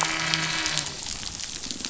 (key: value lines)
label: anthrophony, boat engine
recorder: SoundTrap 500

label: biophony
recorder: SoundTrap 500